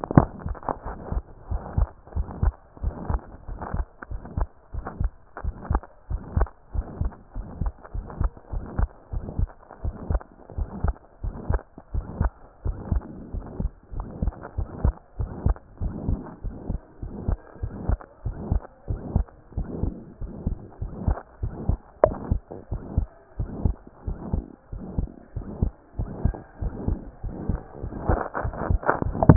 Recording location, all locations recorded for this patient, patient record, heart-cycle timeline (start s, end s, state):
pulmonary valve (PV)
aortic valve (AV)+pulmonary valve (PV)+tricuspid valve (TV)+mitral valve (MV)
#Age: Child
#Sex: Female
#Height: 133.0 cm
#Weight: 29.2 kg
#Pregnancy status: False
#Murmur: Present
#Murmur locations: aortic valve (AV)+mitral valve (MV)+pulmonary valve (PV)+tricuspid valve (TV)
#Most audible location: mitral valve (MV)
#Systolic murmur timing: Holosystolic
#Systolic murmur shape: Plateau
#Systolic murmur grading: III/VI or higher
#Systolic murmur pitch: Medium
#Systolic murmur quality: Musical
#Diastolic murmur timing: nan
#Diastolic murmur shape: nan
#Diastolic murmur grading: nan
#Diastolic murmur pitch: nan
#Diastolic murmur quality: nan
#Outcome: Abnormal
#Campaign: 2014 screening campaign
0.00	0.16	diastole
0.16	0.28	S1
0.28	0.46	systole
0.46	0.56	S2
0.56	0.86	diastole
0.86	0.98	S1
0.98	1.12	systole
1.12	1.22	S2
1.22	1.50	diastole
1.50	1.62	S1
1.62	1.76	systole
1.76	1.88	S2
1.88	2.16	diastole
2.16	2.26	S1
2.26	2.42	systole
2.42	2.52	S2
2.52	2.82	diastole
2.82	2.94	S1
2.94	3.08	systole
3.08	3.20	S2
3.20	3.50	diastole
3.50	3.60	S1
3.60	3.74	systole
3.74	3.86	S2
3.86	4.12	diastole
4.12	4.22	S1
4.22	4.36	systole
4.36	4.48	S2
4.48	4.74	diastole
4.74	4.84	S1
4.84	5.00	systole
5.00	5.10	S2
5.10	5.44	diastole
5.44	5.54	S1
5.54	5.70	systole
5.70	5.80	S2
5.80	6.10	diastole
6.10	6.22	S1
6.22	6.36	systole
6.36	6.48	S2
6.48	6.74	diastole
6.74	6.86	S1
6.86	7.00	systole
7.00	7.12	S2
7.12	7.36	diastole
7.36	7.46	S1
7.46	7.62	systole
7.62	7.72	S2
7.72	7.96	diastole
7.96	8.06	S1
8.06	8.20	systole
8.20	8.30	S2
8.30	8.52	diastole
8.52	8.64	S1
8.64	8.78	systole
8.78	8.88	S2
8.88	9.14	diastole
9.14	9.24	S1
9.24	9.38	systole
9.38	9.48	S2
9.48	9.84	diastole
9.84	9.94	S1
9.94	10.08	systole
10.08	10.20	S2
10.20	10.56	diastole
10.56	10.68	S1
10.68	10.82	systole
10.82	10.94	S2
10.94	11.24	diastole
11.24	11.34	S1
11.34	11.48	systole
11.48	11.60	S2
11.60	11.94	diastole
11.94	12.04	S1
12.04	12.18	systole
12.18	12.30	S2
12.30	12.64	diastole
12.64	12.76	S1
12.76	12.90	systole
12.90	13.02	S2
13.02	13.34	diastole
13.34	13.44	S1
13.44	13.60	systole
13.60	13.70	S2
13.70	13.96	diastole
13.96	14.06	S1
14.06	14.22	systole
14.22	14.32	S2
14.32	14.58	diastole
14.58	14.68	S1
14.68	14.82	systole
14.82	14.94	S2
14.94	15.20	diastole
15.20	15.30	S1
15.30	15.44	systole
15.44	15.56	S2
15.56	15.82	diastole
15.82	15.94	S1
15.94	16.06	systole
16.06	16.20	S2
16.20	16.44	diastole
16.44	16.54	S1
16.54	16.68	systole
16.68	16.80	S2
16.80	17.04	diastole
17.04	17.14	S1
17.14	17.26	systole
17.26	17.36	S2
17.36	17.62	diastole
17.62	17.72	S1
17.72	17.88	systole
17.88	17.98	S2
17.98	18.26	diastole
18.26	18.36	S1
18.36	18.50	systole
18.50	18.60	S2
18.60	18.90	diastole
18.90	19.00	S1
19.00	19.14	systole
19.14	19.26	S2
19.26	19.56	diastole
19.56	19.68	S1
19.68	19.82	systole
19.82	19.94	S2
19.94	20.22	diastole
20.22	20.32	S1
20.32	20.46	systole
20.46	20.56	S2
20.56	20.82	diastole
20.82	20.92	S1
20.92	21.06	systole
21.06	21.16	S2
21.16	21.42	diastole
21.42	21.52	S1
21.52	21.68	systole
21.68	21.78	S2
21.78	22.04	diastole
22.04	22.16	S1
22.16	22.30	systole
22.30	22.40	S2
22.40	22.72	diastole
22.72	22.82	S1
22.82	22.96	systole
22.96	23.08	S2
23.08	23.38	diastole
23.38	23.50	S1
23.50	23.64	systole
23.64	23.74	S2
23.74	24.06	diastole
24.06	24.18	S1
24.18	24.32	systole
24.32	24.44	S2
24.44	24.74	diastole
24.74	24.84	S1
24.84	24.96	systole
24.96	25.08	S2
25.08	25.36	diastole
25.36	25.46	S1
25.46	25.60	systole
25.60	25.72	S2
25.72	25.98	diastole
25.98	26.10	S1
26.10	26.24	systole
26.24	26.34	S2
26.34	26.62	diastole
26.62	26.72	S1
26.72	26.86	systole
26.86	26.98	S2
26.98	27.24	diastole
27.24	27.34	S1
27.34	27.48	systole
27.48	27.60	S2
27.60	27.84	diastole
27.84	27.92	S1
27.92	28.08	systole
28.08	28.16	S2
28.16	28.44	diastole
28.44	28.54	S1
28.54	28.68	systole
28.68	28.80	S2
28.80	29.06	diastole
29.06	29.16	S1
29.16	29.26	systole
29.26	29.36	S2